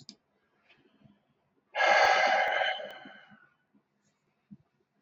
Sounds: Sigh